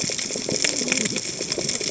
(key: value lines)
label: biophony, cascading saw
recorder: HydroMoth